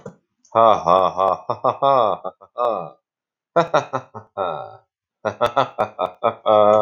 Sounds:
Laughter